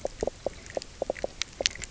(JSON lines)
{"label": "biophony, knock croak", "recorder": "SoundTrap 300"}